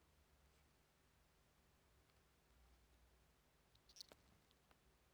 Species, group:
Eumodicogryllus bordigalensis
Orthoptera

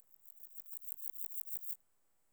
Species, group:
Pseudochorthippus parallelus
Orthoptera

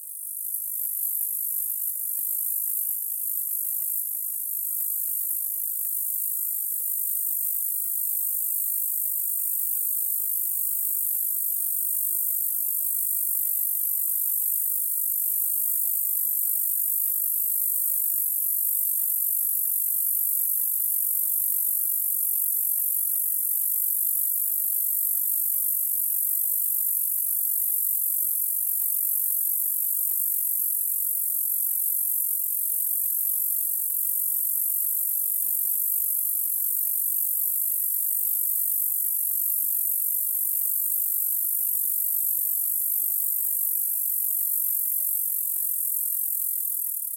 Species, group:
Bradyporus oniscus
Orthoptera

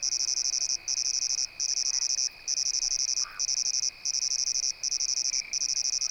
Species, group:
Svercus palmetorum
Orthoptera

